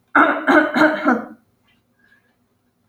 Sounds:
Throat clearing